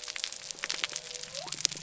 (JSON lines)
{"label": "biophony", "recorder": "SoundTrap 300"}